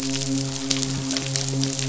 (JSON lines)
{"label": "biophony, midshipman", "recorder": "SoundTrap 500"}